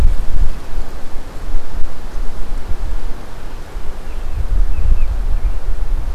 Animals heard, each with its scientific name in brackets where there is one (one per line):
American Robin (Turdus migratorius)